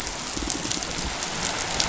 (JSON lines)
{"label": "biophony", "recorder": "SoundTrap 500"}